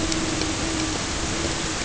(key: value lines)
label: ambient
recorder: HydroMoth